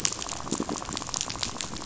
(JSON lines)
{"label": "biophony, rattle", "recorder": "SoundTrap 500"}